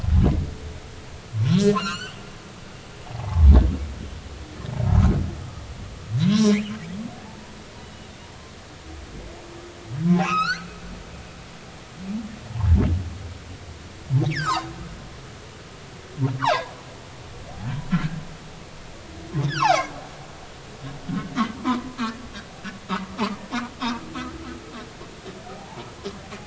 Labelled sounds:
1.3	2.2	humpback whale, 0.96 to 6.2 kHz
3.1	3.5	humpback whale, 0.80 to 1.2 kHz
6.2	6.6	humpback whale, 0.99 to 6.0 kHz
7.2	7.6	humpback whale, 0.80 to 0.99 kHz
10.2	10.7	humpback whale, 0.96 to 4.7 kHz
12.5	12.8	humpback whale, 0.83 to 1.1 kHz
14.3	14.7	humpback whale, 0.80 to 7.5 kHz
16.4	16.7	humpback whale, 0.80 to 4.0 kHz
19.4	19.9	humpback whale, 0.80 to 3.7 kHz
21.6	22.0	humpback whale, 0.90 to 1.1 kHz
23.1	23.4	humpback whale, 0.83 to 1.3 kHz
25.5	25.9	humpback whale, 0.80 to 1.0 kHz

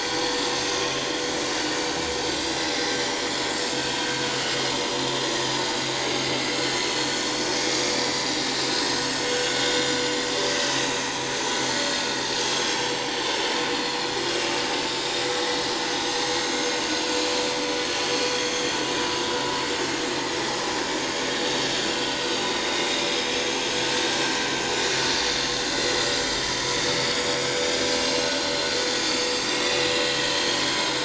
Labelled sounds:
2.7	3.3	vessel noise, 3.8 to 7.1 kHz
4.3	4.6	vessel noise, 2.8 to 3.1 kHz
6.3	6.6	vessel noise, 4.8 to 4.9 kHz
7.7	10.1	vessel noise, 3.5 to 6.7 kHz
10.6	11.3	vessel noise, 2.3 to 6.4 kHz
12.4	13.0	vessel noise, 5.3 to 7.5 kHz
13.8	14.1	vessel noise, 4.1 to 4.4 kHz
15.8	16.2	vessel noise, 6.1 to 6.5 kHz
16.6	16.8	vessel noise, 6.2 to 6.8 kHz
18.3	18.8	vessel noise, 3.2 to 3.4 kHz
20.8	21.9	vessel noise, 6.8 to 7.2 kHz
22.4	22.7	vessel noise, 3.6 to 3.8 kHz
23.3	23.6	vessel noise, 6.3 to 6.6 kHz
24.8	26.5	vessel noise, 4.7 to 7.2 kHz
27.1	29.2	vessel noise, 2.7 to 7.1 kHz
29.7	30.9	vessel noise, 1.8 to 7.4 kHz

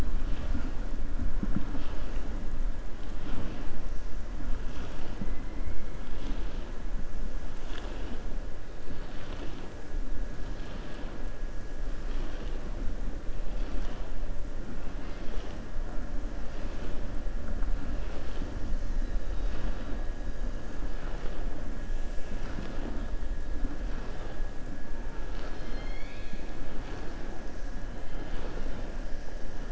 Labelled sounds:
25.2	26.5	killer whale, southern resident, 1.3 to 5.3 kHz

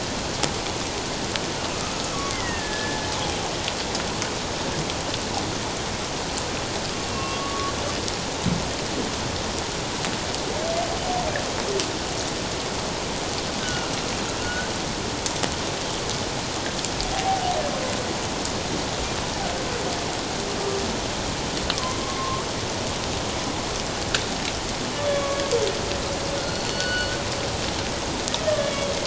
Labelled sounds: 2.1	3.1	humpback whale, 1.0 to 2.3 kHz
7.1	7.7	humpback whale, 0.97 to 2.8 kHz
13.6	14.7	humpback whale, 1.3 to 3.1 kHz
17.1	17.4	humpback whale, 0.78 to 0.84 kHz
21.7	22.5	humpback whale, 0.97 to 1.2 kHz
25.1	25.4	humpback whale, 1.1 to 2.3 kHz
26.4	27.1	humpback whale, 1.4 to 4.5 kHz
28.4	28.9	humpback whale, 1.7 to 3.5 kHz

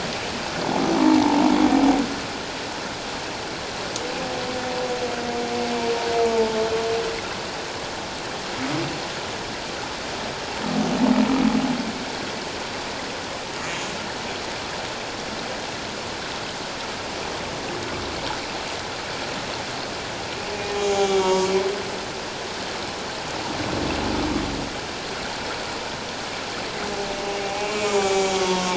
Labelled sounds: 6.2	6.6	humpback whale, 0.84 to 0.94 kHz
20.7	21.5	humpback whale, 0.78 to 7.1 kHz
27.4	28.7	humpback whale, 0.78 to 7.5 kHz

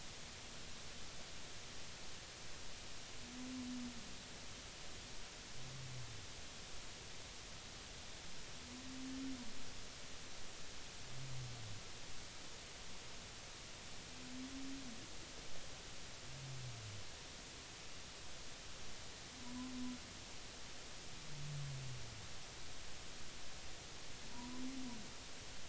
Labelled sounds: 24.3	24.6	humpback whale, 0.90 to 1.1 kHz

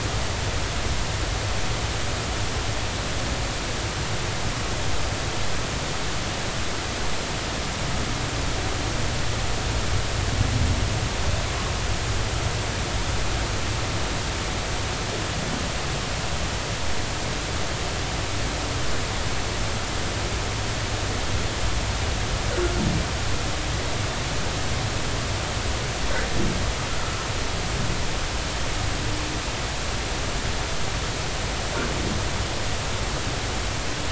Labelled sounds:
27.0	27.3	humpback whale, 1.2 to 1.4 kHz

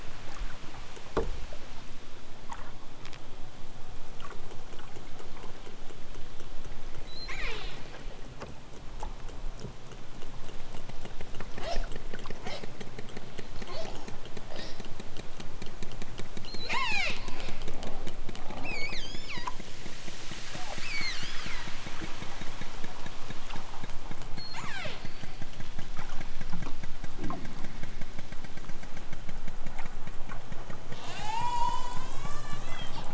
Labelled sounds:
7.0	7.8	killer whale, southern Alaska resident, 0.18 to 8.0 kHz
16.5	17.2	killer whale, southern Alaska resident, 0 to 8.0 kHz
18.6	19.6	killer whale, southern Alaska resident, 0.55 to 8.0 kHz
20.8	21.7	killer whale, southern Alaska resident, 0.46 to 7.3 kHz
24.3	25.1	killer whale, southern Alaska resident, 0.23 to 8.0 kHz
30.9	33.1	killer whale, southern Alaska resident, 0.50 to 8.0 kHz

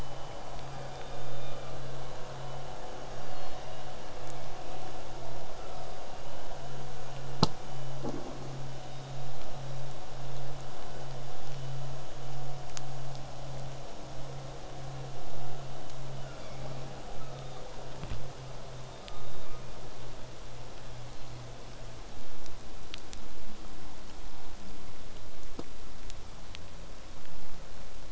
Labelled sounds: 16.2	16.9	killer whale, southern resident, 0.96 to 5.7 kHz
18.9	19.8	killer whale, southern resident, call S17, 1.0 to 5.1 kHz

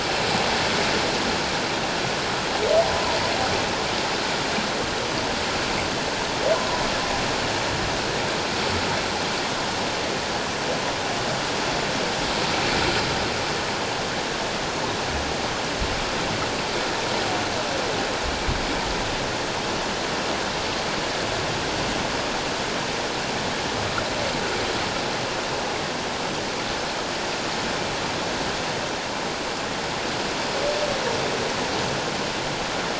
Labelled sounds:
2.9	3.2	humpback whale, 0.91 to 1.1 kHz

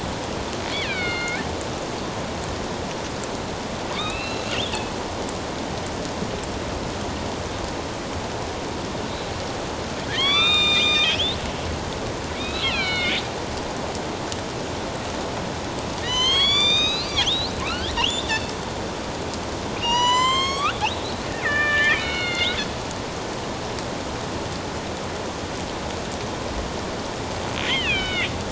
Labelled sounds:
0.7	1.4	killer whale, northern resident, A clan, AB subclan, 1.4 to 4.7 kHz
3.9	4.7	killer whale, northern resident, A clan, AB subclan, 0.94 to 4.1 kHz
10.1	11.4	killer whale, northern resident, A clan, AB subclan, 1.0 to 7.6 kHz
12.3	13.2	killer whale, northern resident, A clan, AB subclan, 1.3 to 4.2 kHz
16.0	18.4	killer whale, northern resident, A clan, AB subclan, 0.94 to 7.5 kHz
19.8	22.6	killer whale, northern resident, A clan, AB subclan, 0.88 to 7.9 kHz
27.6	28.3	killer whale, northern resident, A clan, AB subclan, 1.3 to 4.1 kHz

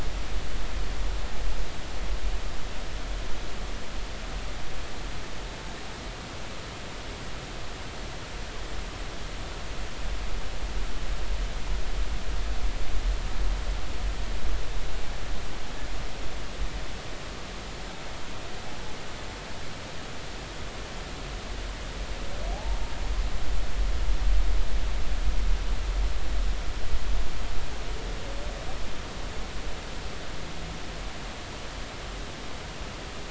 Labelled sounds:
22.5	22.8	humpback whale, 0.80 to 0.96 kHz

